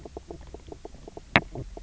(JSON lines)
{"label": "biophony, knock croak", "recorder": "SoundTrap 300"}